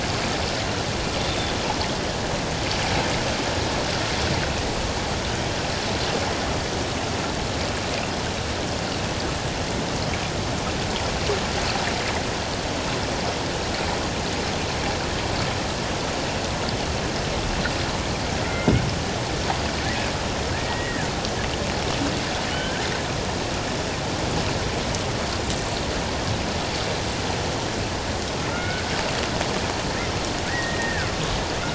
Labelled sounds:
18.4	18.8	killer whale, Bigg's (transient), 1.9 to 2.3 kHz
20.5	21.1	killer whale, Bigg's (transient), 1.4 to 2.0 kHz
22.5	22.9	killer whale, Bigg's (transient), 1.4 to 1.8 kHz
28.5	28.9	killer whale, Bigg's (transient), 1.2 to 1.6 kHz
30.5	31.1	killer whale, Bigg's (transient), 1.4 to 2.0 kHz

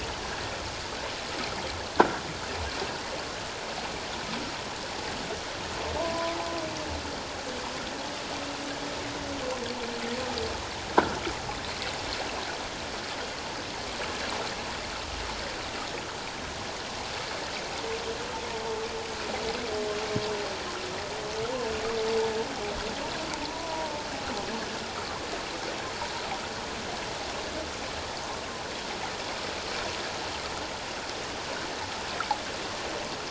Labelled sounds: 6.0	6.3	humpback whale, 0.84 to 1.1 kHz
23.4	23.9	humpback whale, 0.78 to 1.0 kHz

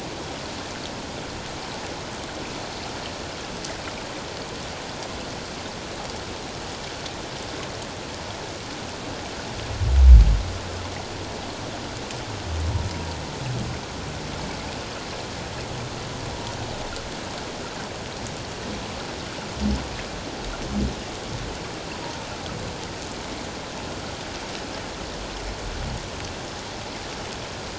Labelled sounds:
22.0	22.3	humpback whale, 0.88 to 1.0 kHz

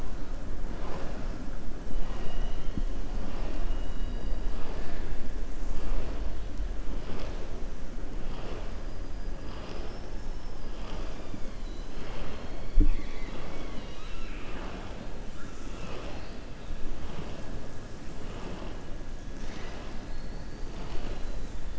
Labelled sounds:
2.0	2.8	killer whale, southern resident, 1.0 to 5.7 kHz

